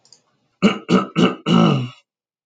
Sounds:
Throat clearing